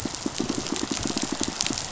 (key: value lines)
label: biophony, pulse
recorder: SoundTrap 500